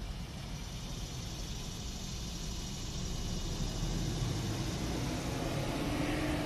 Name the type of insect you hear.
cicada